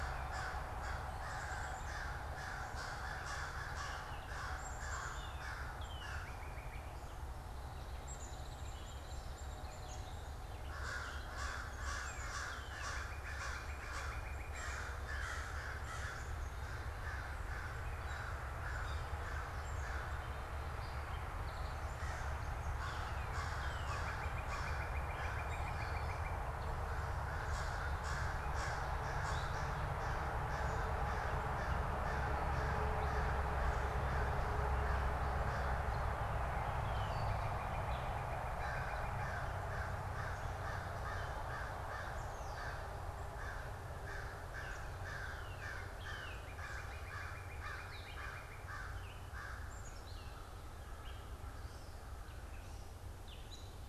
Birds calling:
Black-capped Chickadee (Poecile atricapillus)
American Crow (Corvus brachyrhynchos)
Northern Cardinal (Cardinalis cardinalis)
Gray Catbird (Dumetella carolinensis)
Hairy Woodpecker (Dryobates villosus)

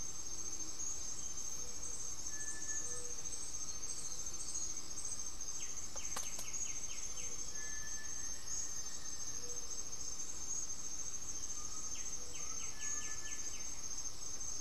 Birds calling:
White-winged Becard (Pachyramphus polychopterus)
Black-faced Antthrush (Formicarius analis)
Gray-fronted Dove (Leptotila rufaxilla)
Cinereous Tinamou (Crypturellus cinereus)
Undulated Tinamou (Crypturellus undulatus)

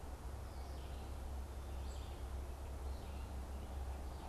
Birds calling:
Red-eyed Vireo (Vireo olivaceus)

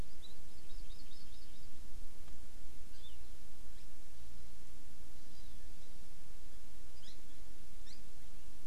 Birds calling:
Hawaii Amakihi (Chlorodrepanis virens)

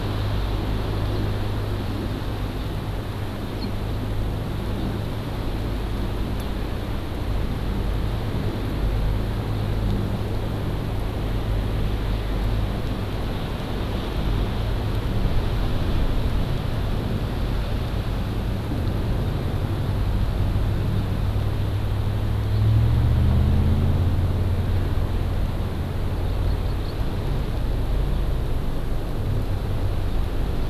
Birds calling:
Hawaii Amakihi (Chlorodrepanis virens)

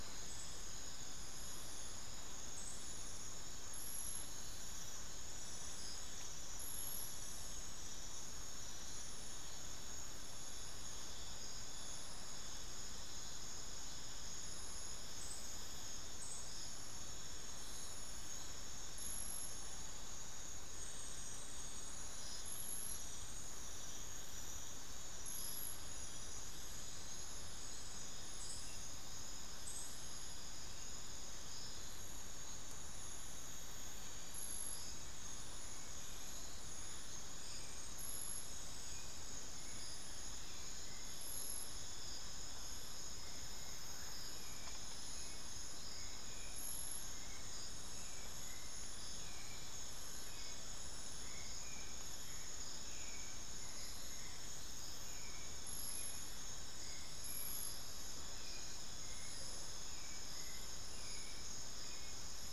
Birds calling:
Hauxwell's Thrush (Turdus hauxwelli)
unidentified bird

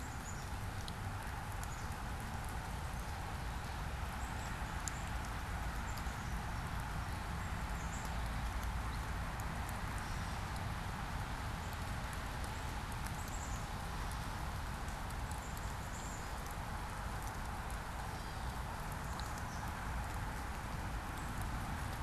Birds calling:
Black-capped Chickadee (Poecile atricapillus)
Gray Catbird (Dumetella carolinensis)

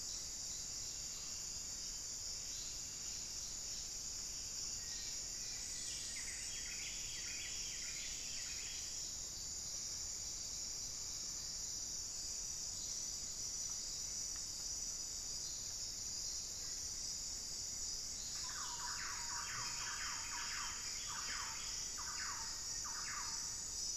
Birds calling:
Black-faced Antthrush (Formicarius analis)
unidentified bird
Thrush-like Wren (Campylorhynchus turdinus)
Buff-breasted Wren (Cantorchilus leucotis)
Pygmy Antwren (Myrmotherula brachyura)

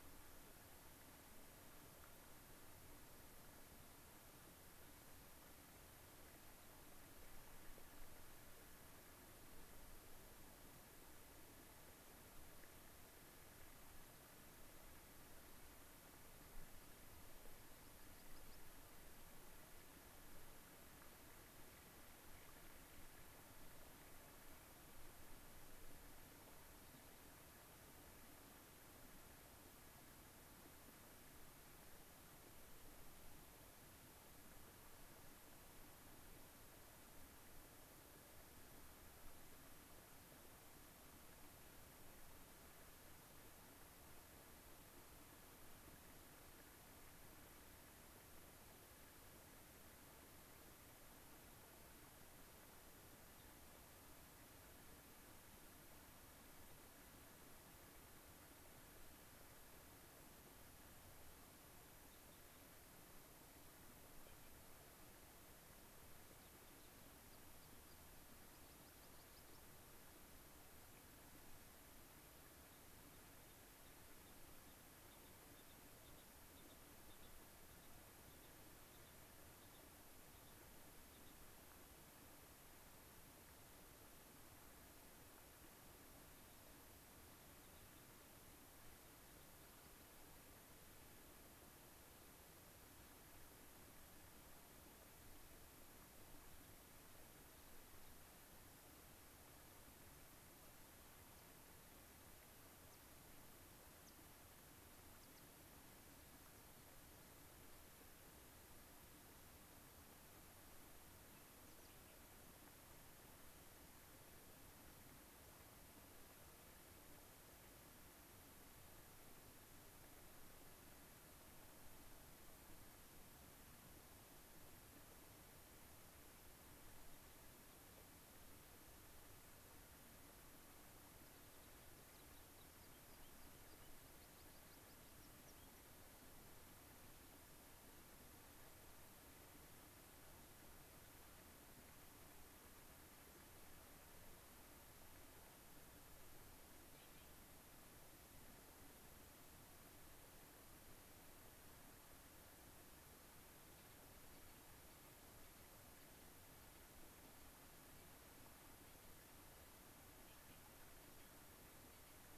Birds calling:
unidentified bird
American Pipit (Anthus rubescens)

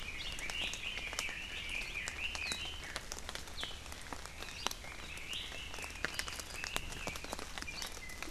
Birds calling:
Red-billed Leiothrix (Leiothrix lutea)

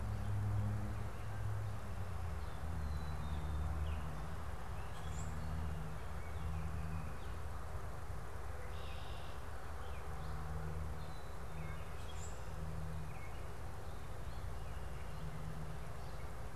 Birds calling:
Common Grackle (Quiscalus quiscula)
Red-winged Blackbird (Agelaius phoeniceus)

